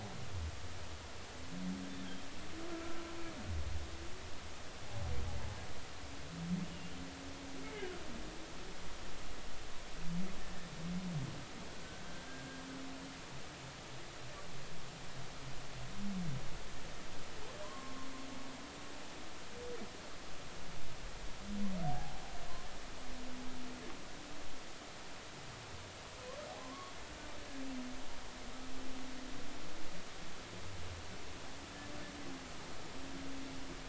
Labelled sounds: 2.7	3.0	humpback whale, 1.3 to 1.4 kHz
10.4	10.7	humpback whale, 1.7 to 1.9 kHz
12.1	12.4	humpback whale, 1.5 to 1.7 kHz
17.6	18.1	humpback whale, 0.96 to 1.2 kHz
21.8	22.2	humpback whale, 0.80 to 0.86 kHz
26.6	26.9	humpback whale, 0.96 to 1.2 kHz

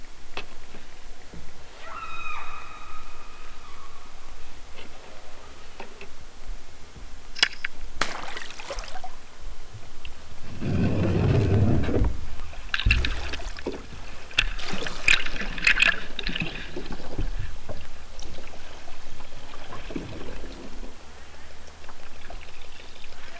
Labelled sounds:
1.8	2.6	killer whale, southern Alaska resident, 0.41 to 6.7 kHz

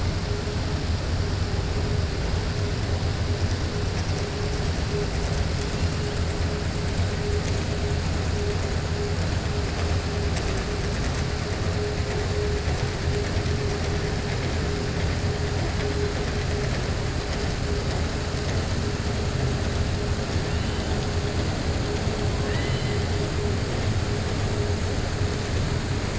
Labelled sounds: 22.3	23.0	killer whale, 0.97 to 4.7 kHz

